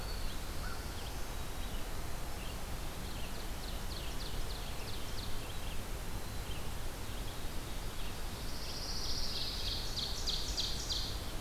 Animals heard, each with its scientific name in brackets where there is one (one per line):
Black-throated Green Warbler (Setophaga virens)
American Crow (Corvus brachyrhynchos)
Red-eyed Vireo (Vireo olivaceus)
Pine Warbler (Setophaga pinus)
Ovenbird (Seiurus aurocapilla)
Black-throated Blue Warbler (Setophaga caerulescens)